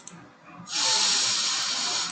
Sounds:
Sniff